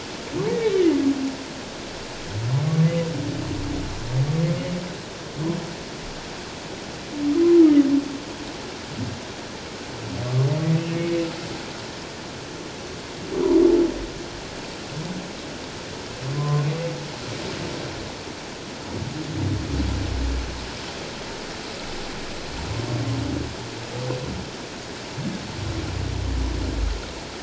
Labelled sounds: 0.6	0.8	humpback whale, 2.2 to 2.4 kHz
10.9	11.2	humpback whale, 2.2 to 2.3 kHz
16.3	16.7	humpback whale, 0.97 to 1.1 kHz

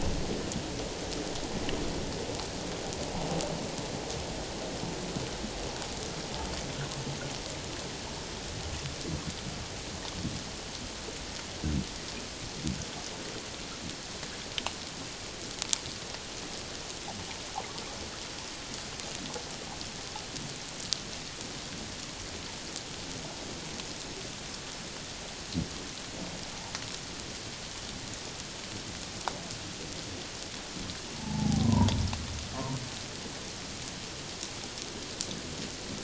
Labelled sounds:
31.1	31.9	humpback whale, 0.78 to 1.1 kHz

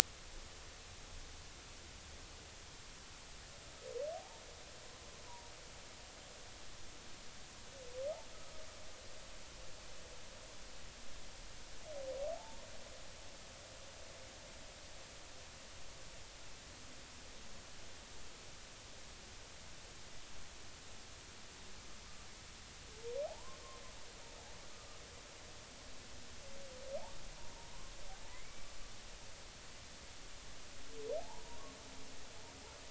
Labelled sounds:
4.1	4.4	humpback whale, 0.80 to 0.96 kHz
5.3	5.5	humpback whale, 0.90 to 1.0 kHz
12.3	12.7	humpback whale, 0.80 to 1.1 kHz
23.2	23.6	humpback whale, 0.80 to 1.1 kHz
27.4	27.7	humpback whale, 0.86 to 0.99 kHz
28.3	28.7	humpback whale, 1.9 to 2.3 kHz
31.2	31.6	humpback whale, 0.80 to 1.1 kHz

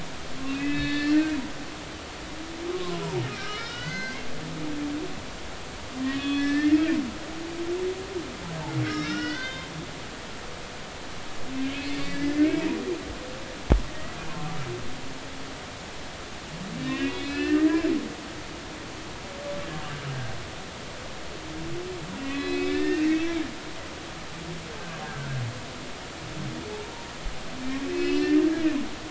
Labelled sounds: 0.4	1.3	humpback whale, 1.7 to 4.4 kHz
2.7	4.3	humpback whale, 0.96 to 4.3 kHz
6.1	6.8	humpback whale, 1.1 to 4.3 kHz
8.8	9.7	humpback whale, 1.3 to 5.6 kHz
11.6	12.6	humpback whale, 2.0 to 2.3 kHz
13.9	14.2	humpback whale, 1.8 to 2.0 kHz
16.8	17.7	humpback whale, 1.7 to 4.2 kHz
22.2	23.2	humpback whale, 1.7 to 4.0 kHz
25.0	25.3	humpback whale, 1.3 to 1.7 kHz
27.8	28.4	humpback whale, 2.5 to 4.5 kHz

